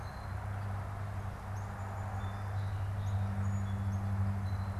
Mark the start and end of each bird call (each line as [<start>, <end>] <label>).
[1.27, 4.27] Song Sparrow (Melospiza melodia)